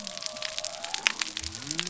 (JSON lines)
{"label": "biophony", "recorder": "SoundTrap 300"}